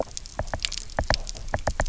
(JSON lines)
{"label": "biophony, knock", "recorder": "SoundTrap 300"}